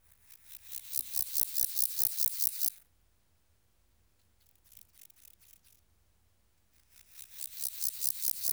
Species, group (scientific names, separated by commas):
Pseudochorthippus montanus, Orthoptera